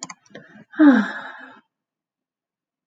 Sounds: Sigh